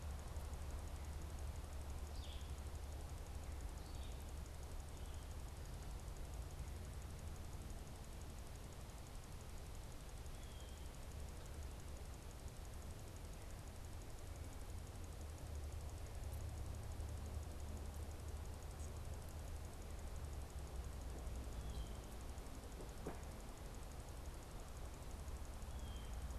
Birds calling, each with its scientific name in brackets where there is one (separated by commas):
Blue Jay (Cyanocitta cristata), Red-eyed Vireo (Vireo olivaceus)